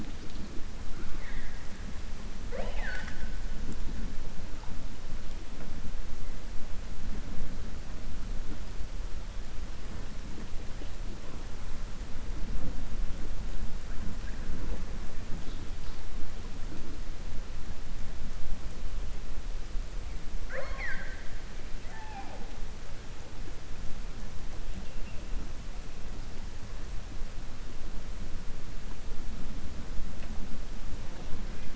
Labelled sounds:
2.4	3.3	killer whale, southern resident, 0.48 to 7.7 kHz
20.4	21.3	killer whale, southern resident, 0.51 to 4.9 kHz

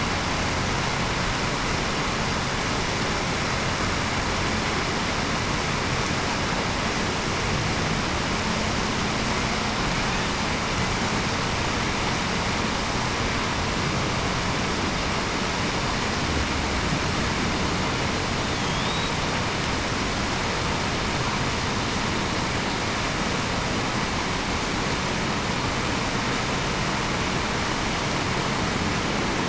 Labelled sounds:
18.6	19.1	killer whale, Bigg's (transient), 3.2 to 3.9 kHz

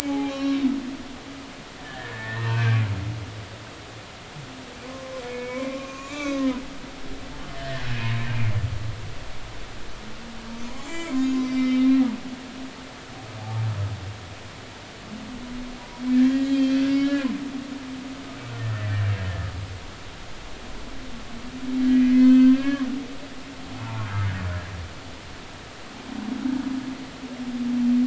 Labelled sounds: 0.0	0.7	humpback whale, 0.80 to 4.2 kHz
1.8	2.9	humpback whale, 0.86 to 2.8 kHz
4.9	6.5	humpback whale, 0.96 to 7.1 kHz
7.6	7.9	humpback whale, 1.7 to 1.9 kHz
10.8	12.0	humpback whale, 0.93 to 7.4 kHz
13.4	13.6	humpback whale, 0.80 to 0.93 kHz
16.1	17.3	humpback whale, 1.5 to 4.0 kHz
18.6	18.9	humpback whale, 1.7 to 1.9 kHz
22.2	22.9	humpback whale, 1.0 to 1.8 kHz

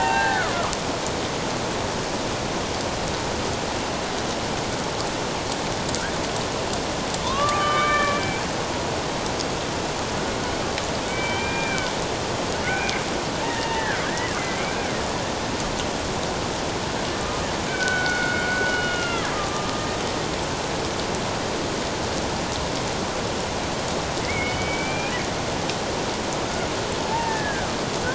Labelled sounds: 7.2	8.4	killer whale, Bigg's (transient), 0.88 to 3.3 kHz
11.1	11.9	killer whale, Bigg's (transient), 1.5 to 3.2 kHz
12.6	14.9	killer whale, Bigg's (transient), 0.81 to 3.0 kHz
17.2	19.9	killer whale, Bigg's (transient), 1.1 to 3.0 kHz
24.2	25.1	killer whale, Bigg's (transient), 2.0 to 2.6 kHz
27.1	27.7	killer whale, Bigg's (transient), 0.84 to 2.0 kHz

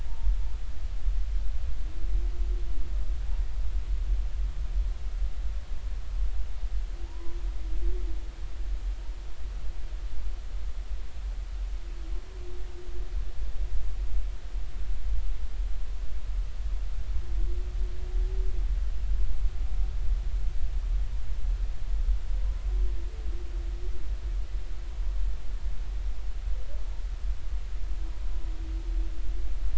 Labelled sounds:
7.0	7.4	humpback whale, 0.86 to 1.1 kHz

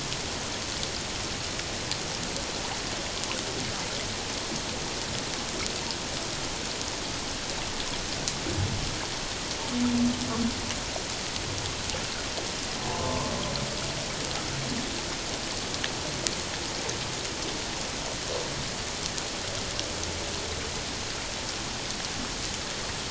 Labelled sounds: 12.8	13.3	humpback whale, 0.84 to 1.2 kHz

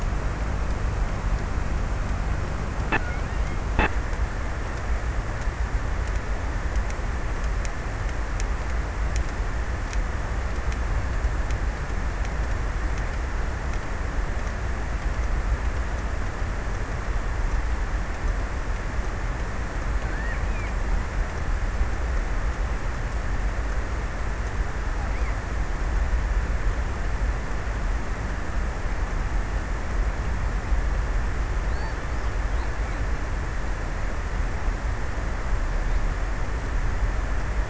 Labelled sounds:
19.5	21.2	killer whale, offshore, 0.93 to 3.4 kHz
24.2	26.5	killer whale, offshore, 0.49 to 5.2 kHz

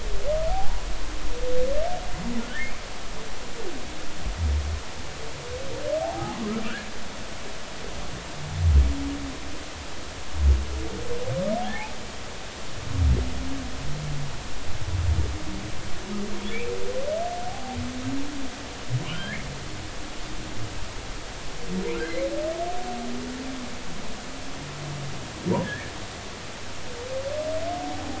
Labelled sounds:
7.0	7.4	humpback whale, 0.80 to 0.96 kHz
11.6	11.9	humpback whale, 0.80 to 0.93 kHz
17.4	17.8	humpback whale, 0.80 to 0.90 kHz
19.1	19.4	humpback whale, 1.3 to 3.3 kHz
22.0	22.3	humpback whale, 2.0 to 2.3 kHz
25.6	25.9	humpback whale, 1.6 to 1.9 kHz
27.8	28.1	humpback whale, 0.80 to 0.86 kHz

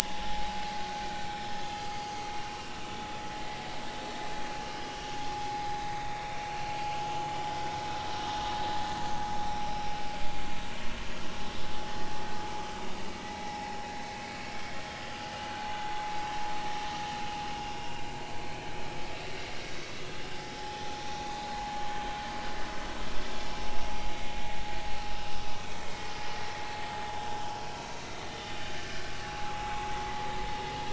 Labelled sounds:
1.0	2.0	vessel noise, 0.80 to 5.5 kHz
5.5	5.7	vessel noise, 4.8 to 5.0 kHz
16.3	16.7	vessel noise, 4.2 to 4.4 kHz
20.6	21.5	vessel noise, 0.80 to 3.8 kHz
26.5	26.8	vessel noise, 5.9 to 6.0 kHz

